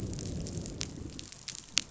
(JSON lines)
{"label": "biophony, growl", "recorder": "SoundTrap 500"}